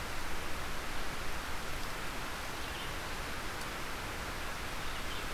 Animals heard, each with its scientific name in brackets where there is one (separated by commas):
Red-eyed Vireo (Vireo olivaceus)